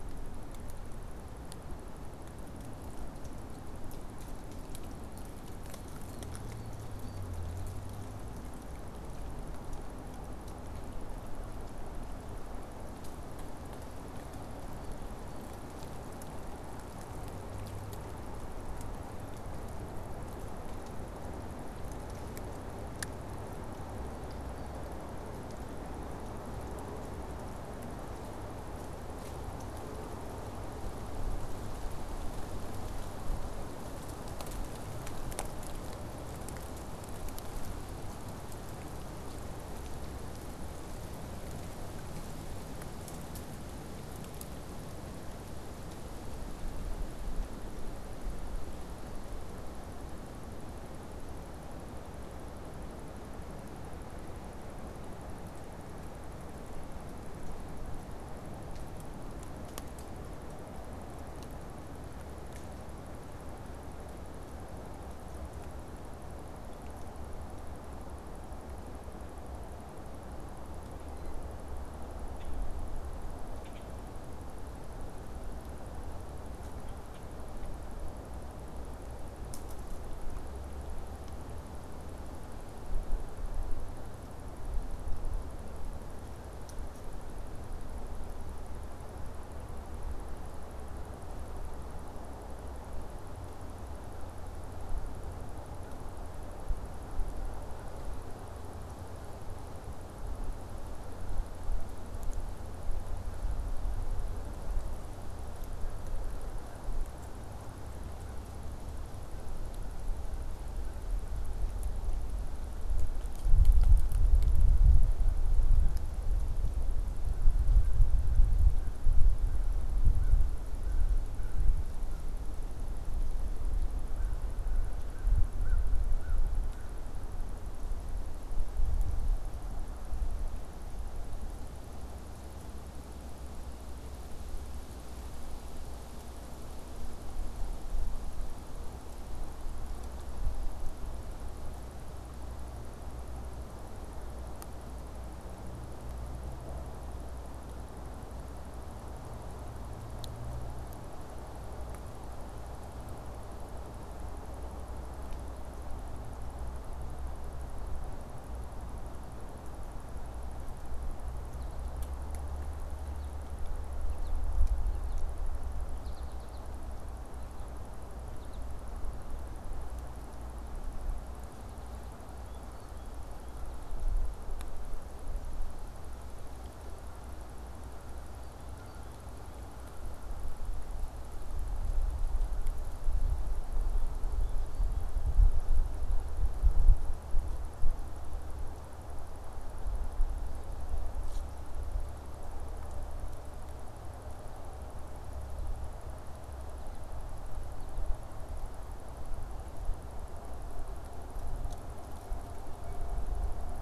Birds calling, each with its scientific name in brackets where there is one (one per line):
American Goldfinch (Spinus tristis)
American Crow (Corvus brachyrhynchos)